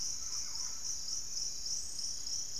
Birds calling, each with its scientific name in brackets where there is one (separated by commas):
Thrush-like Wren (Campylorhynchus turdinus), Undulated Tinamou (Crypturellus undulatus), Dusky-capped Greenlet (Pachysylvia hypoxantha)